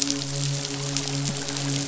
{"label": "biophony, midshipman", "recorder": "SoundTrap 500"}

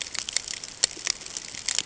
{"label": "ambient", "recorder": "HydroMoth"}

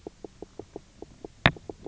{"label": "biophony, knock croak", "recorder": "SoundTrap 300"}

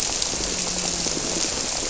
{"label": "biophony, grouper", "recorder": "SoundTrap 300"}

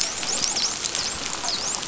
{"label": "biophony, dolphin", "recorder": "SoundTrap 500"}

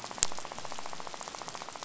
{"label": "biophony, rattle", "recorder": "SoundTrap 500"}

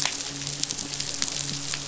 {"label": "biophony, midshipman", "recorder": "SoundTrap 500"}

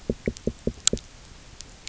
{"label": "biophony, knock", "recorder": "SoundTrap 300"}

